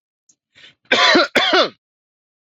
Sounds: Cough